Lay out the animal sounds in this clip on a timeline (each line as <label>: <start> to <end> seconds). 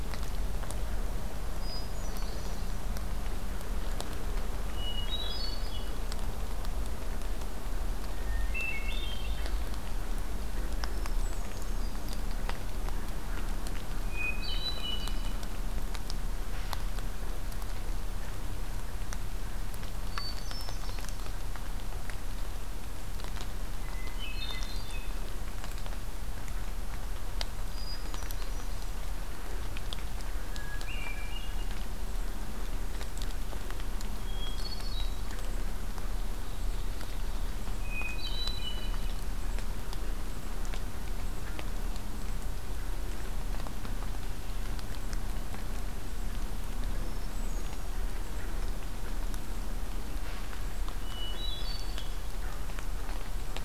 Hermit Thrush (Catharus guttatus): 1.6 to 2.8 seconds
Hermit Thrush (Catharus guttatus): 4.7 to 6.0 seconds
Hermit Thrush (Catharus guttatus): 8.2 to 9.6 seconds
Hermit Thrush (Catharus guttatus): 10.8 to 12.3 seconds
Hermit Thrush (Catharus guttatus): 14.0 to 15.4 seconds
Hermit Thrush (Catharus guttatus): 20.0 to 21.2 seconds
Hermit Thrush (Catharus guttatus): 23.8 to 25.2 seconds
Hermit Thrush (Catharus guttatus): 27.7 to 28.9 seconds
Hermit Thrush (Catharus guttatus): 30.3 to 31.9 seconds
Hermit Thrush (Catharus guttatus): 34.1 to 35.4 seconds
Ovenbird (Seiurus aurocapilla): 35.9 to 37.7 seconds
Hermit Thrush (Catharus guttatus): 37.8 to 39.2 seconds
Hermit Thrush (Catharus guttatus): 46.9 to 47.9 seconds
Hermit Thrush (Catharus guttatus): 51.0 to 52.2 seconds